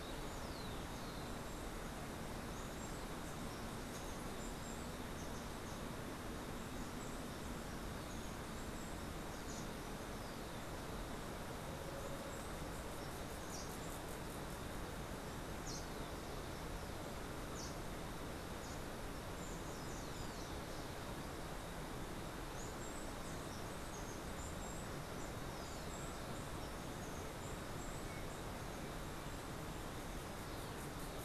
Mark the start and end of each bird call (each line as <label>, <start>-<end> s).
Steely-vented Hummingbird (Saucerottia saucerottei), 0.0-10.4 s
unidentified bird, 13.3-19.0 s
Steely-vented Hummingbird (Saucerottia saucerottei), 19.2-29.5 s